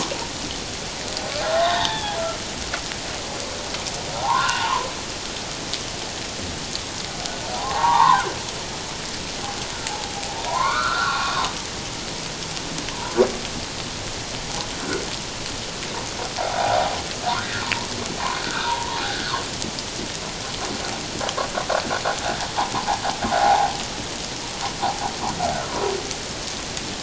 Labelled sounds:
1.6	2.2	humpback whale, 0.78 to 3.9 kHz
4.1	4.9	humpback whale, 0.78 to 2.9 kHz
7.5	8.2	humpback whale, 0.78 to 3.7 kHz
9.9	11.5	humpback whale, 0.78 to 2.6 kHz
16.6	17.6	humpback whale, 0.78 to 2.0 kHz
18.4	19.3	humpback whale, 0.88 to 1.8 kHz
23.4	23.7	humpback whale, 0.78 to 0.97 kHz

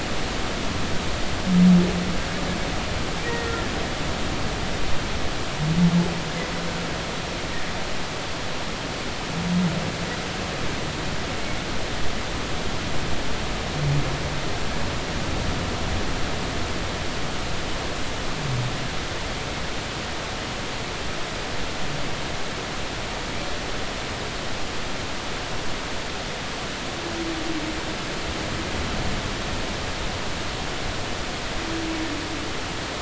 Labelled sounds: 3.2	3.5	humpback whale, 1.8 to 2.0 kHz

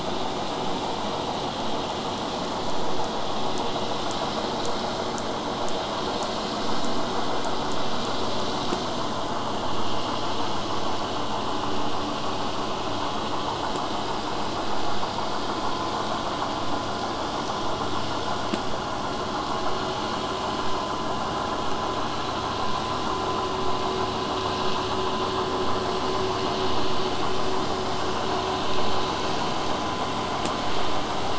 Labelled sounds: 16.6	21.6	vessel noise, 0 to 8.0 kHz

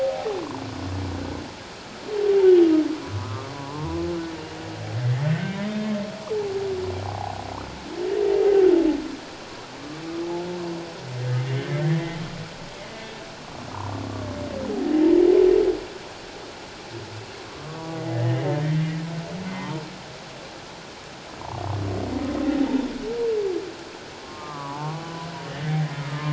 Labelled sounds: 0.0	0.4	humpback whale, 0.78 to 0.88 kHz
3.2	4.0	humpback whale, 0.81 to 1.3 kHz
5.4	5.7	humpback whale, 2.0 to 2.2 kHz
6.3	6.6	humpback whale, 0.78 to 0.94 kHz
7.1	7.4	humpback whale, 0.78 to 1.1 kHz
11.4	11.7	humpback whale, 1.9 to 2.2 kHz
17.7	18.5	humpback whale, 1.1 to 2.1 kHz
19.5	19.8	humpback whale, 0.88 to 1.1 kHz
24.2	25.0	humpback whale, 0.81 to 1.3 kHz
25.5	26.3	humpback whale, 1.2 to 2.0 kHz

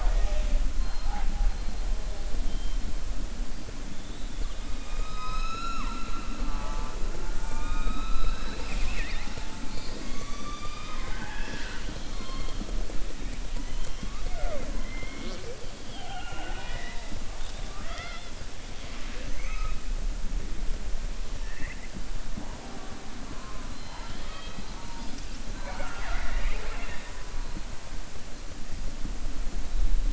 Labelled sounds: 18.8	19.8	killer whale, southern resident, 0.49 to 3.3 kHz
23.7	24.8	killer whale, southern resident, 0.86 to 4.9 kHz
25.9	27.2	killer whale, southern resident, 0.40 to 4.7 kHz

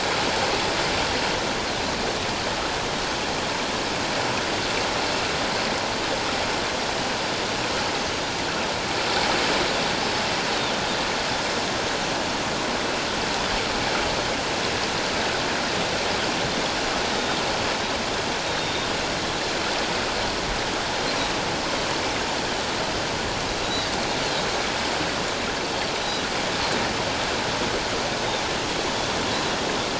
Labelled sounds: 17.1	17.4	Pacific white-sided dolphin, 3.6 to 3.7 kHz
18.5	18.9	Pacific white-sided dolphin, 3.5 to 3.8 kHz

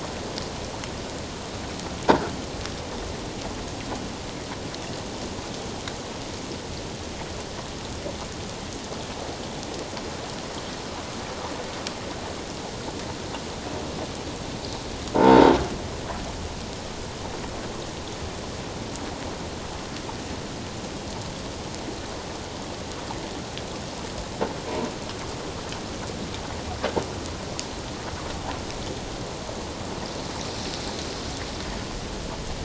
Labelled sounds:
15.2	15.6	croaking sound likely from a nearby submerged object, 0.84 to 0.97 kHz

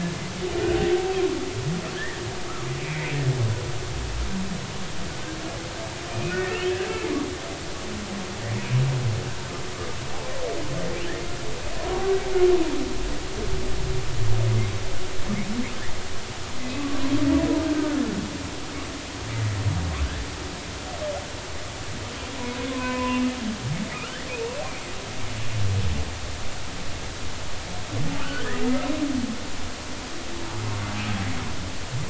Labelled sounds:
2.8	3.1	humpback whale, 1.9 to 2.4 kHz
6.1	6.9	humpback whale, 1.8 to 3.4 kHz
16.6	16.9	humpback whale, 2.5 to 2.6 kHz
17.7	18.0	humpback whale, 1.3 to 1.6 kHz
22.7	23.3	humpback whale, 0.93 to 2.8 kHz
28.2	28.9	humpback whale, 1.1 to 1.6 kHz

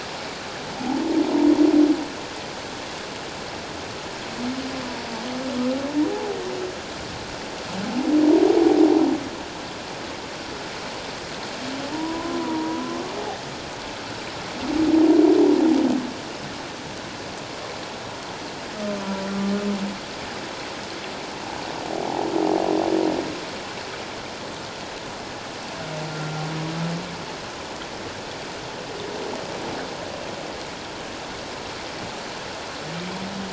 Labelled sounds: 6.1	6.4	humpback whale, 0.78 to 0.91 kHz
11.9	13.0	humpback whale, 0.88 to 1.1 kHz
22.1	22.3	humpback whale, 0.78 to 0.97 kHz

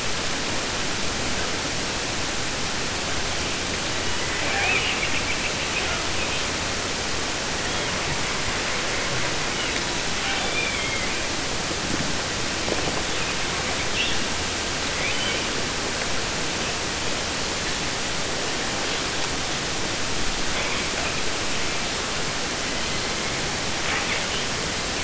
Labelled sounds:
3.7	6.6	killer whale, southern resident, 0.50 to 4.6 kHz
7.5	8.2	killer whale, 0.28 to 4.0 kHz
9.3	11.5	killer whale, 0.50 to 4.9 kHz
13.1	13.4	killer whale, 2.1 to 3.3 kHz
13.9	14.3	killer whale, 2.3 to 4.1 kHz
14.8	15.5	killer whale, 0.50 to 4.2 kHz
20.5	21.9	killer whale, 0.94 to 4.6 kHz
22.5	23.6	killer whale, southern resident, 0.55 to 4.3 kHz
23.8	24.9	killer whale, 0.39 to 4.4 kHz

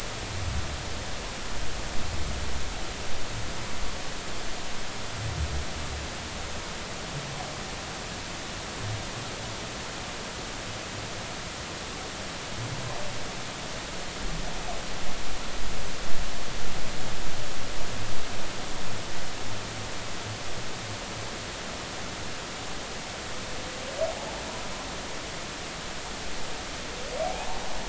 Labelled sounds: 27.2	27.6	humpback whale, 0.80 to 1.0 kHz

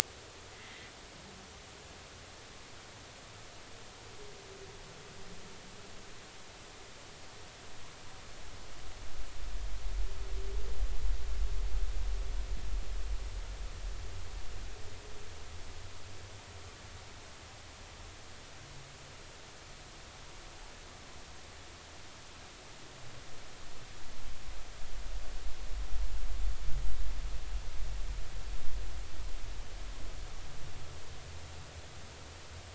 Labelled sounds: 0.5	0.9	humpback whale, 1.9 to 2.1 kHz

